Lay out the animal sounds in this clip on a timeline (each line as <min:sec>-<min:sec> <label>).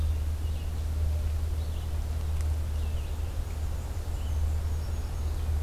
0:00.0-0:05.6 Red-eyed Vireo (Vireo olivaceus)
0:03.1-0:05.4 Black-and-white Warbler (Mniotilta varia)